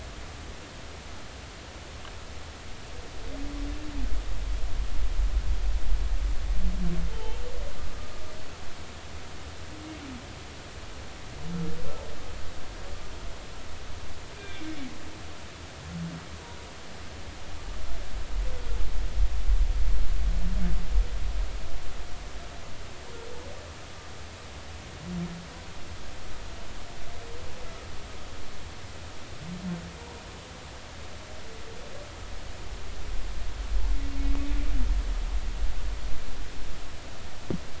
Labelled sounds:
7.1	7.4	humpback whale, 0.83 to 3.2 kHz
14.4	14.8	humpback whale, 1.5 to 2.5 kHz

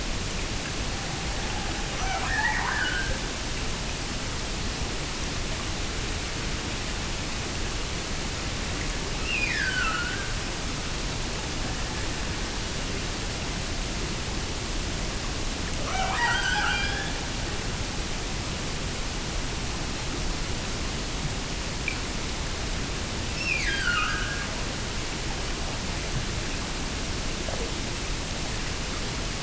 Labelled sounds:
2.0	3.4	killer whale, Bigg's (transient), Gulf of Alaska transient, 0.50 to 2.7 kHz
9.2	10.4	killer whale, Bigg's (transient), Gulf of Alaska transient, 1.1 to 5.6 kHz
15.7	17.5	killer whale, Bigg's (transient), Gulf of Alaska transient, 0.48 to 8.0 kHz
23.3	24.6	killer whale, Bigg's (transient), Gulf of Alaska transient, 1.1 to 8.0 kHz

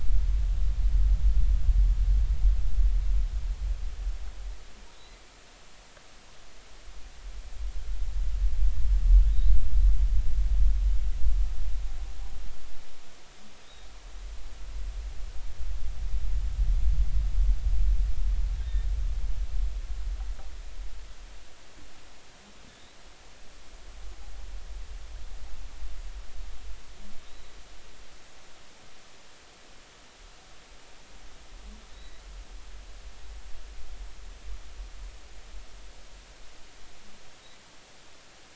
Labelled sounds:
27.2	27.5	humpback whale, 3.6 to 4.0 kHz
31.9	32.2	humpback whale, 1.9 to 4.0 kHz

